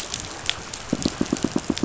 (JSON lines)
{"label": "biophony, pulse", "recorder": "SoundTrap 500"}